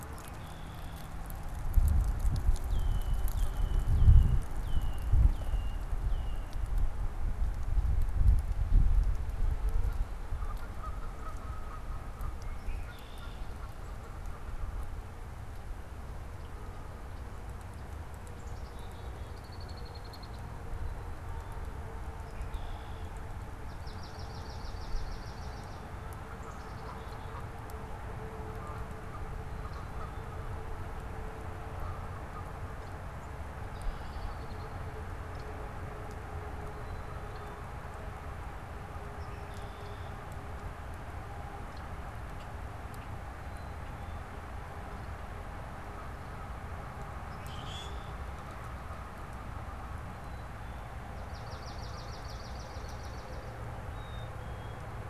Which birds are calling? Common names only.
Red-winged Blackbird, Canada Goose, Black-capped Chickadee, Swamp Sparrow, Common Grackle